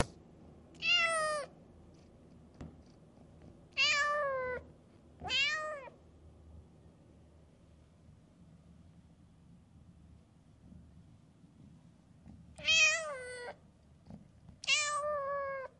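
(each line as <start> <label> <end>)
0.0 A ball is kicked once, sounding distant. 0.3
0.8 A kitten meows once softly and sadly. 1.5
2.4 A ball is kicked once, sounding distant. 3.5
3.7 A kitten meows once in a prolonged manner. 4.6
5.2 A kitten meows once quickly and closely. 5.9
12.1 A ball is kicked against the ground once, sounding very distant. 12.4
12.6 A kitten meows once in a prolonged manner. 13.6
14.0 A cat makes distant noises. 14.2
14.6 A kitten meows loudly and prolonged once. 15.8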